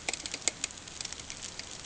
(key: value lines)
label: ambient
recorder: HydroMoth